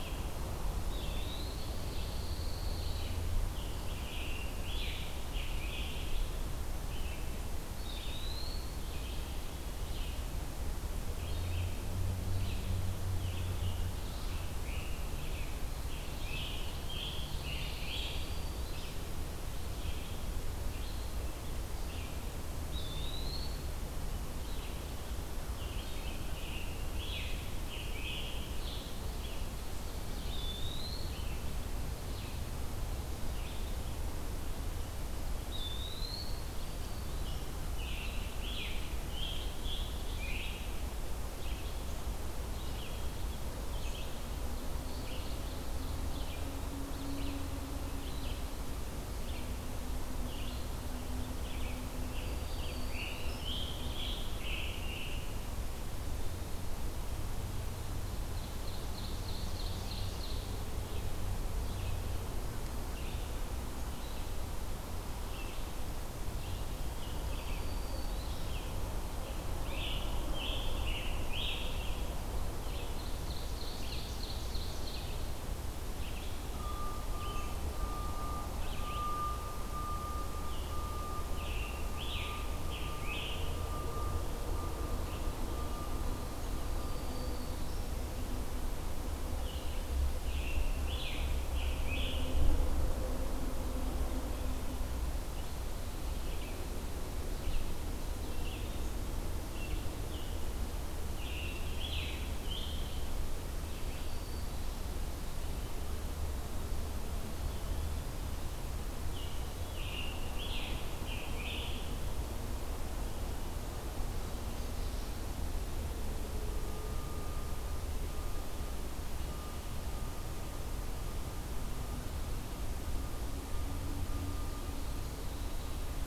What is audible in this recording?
Red-eyed Vireo, Eastern Wood-Pewee, Pine Warbler, Scarlet Tanager, Black-throated Green Warbler, Ovenbird